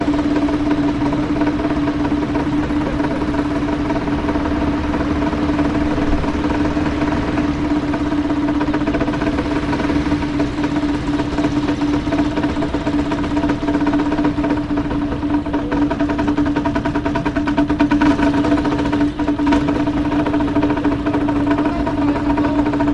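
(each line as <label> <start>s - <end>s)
The sound of a small boat motor with waves in the background. 0.0s - 22.9s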